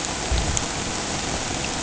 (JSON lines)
{"label": "ambient", "recorder": "HydroMoth"}